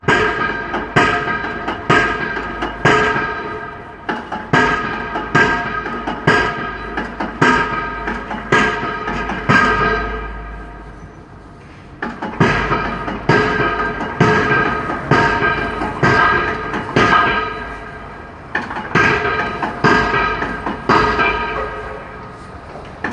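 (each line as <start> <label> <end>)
0.0 A machine strikes metal repeatedly and rhythmically, producing loud hammering echoes in the distance. 10.8
11.9 A machine rhythmically striking metal, producing loud, clear hammering echoes in the distance. 22.3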